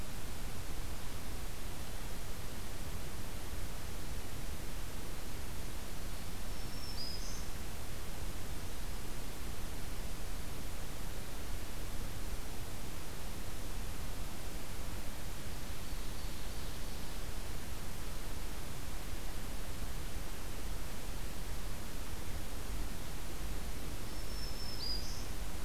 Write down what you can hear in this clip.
Black-throated Green Warbler, Ovenbird